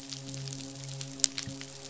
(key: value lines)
label: biophony, midshipman
recorder: SoundTrap 500